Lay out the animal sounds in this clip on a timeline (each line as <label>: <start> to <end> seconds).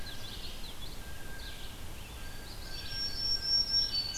Blue Jay (Cyanocitta cristata): 0.0 to 0.6 seconds
Common Yellowthroat (Geothlypis trichas): 0.0 to 1.3 seconds
Red-eyed Vireo (Vireo olivaceus): 0.0 to 4.2 seconds
Blue Jay (Cyanocitta cristata): 1.0 to 1.7 seconds
Song Sparrow (Melospiza melodia): 1.9 to 4.2 seconds
Blue Jay (Cyanocitta cristata): 2.1 to 4.2 seconds
Black-throated Green Warbler (Setophaga virens): 2.4 to 4.2 seconds